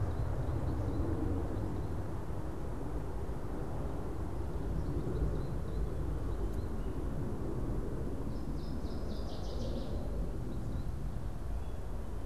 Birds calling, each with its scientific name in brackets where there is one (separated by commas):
Northern Waterthrush (Parkesia noveboracensis), American Goldfinch (Spinus tristis)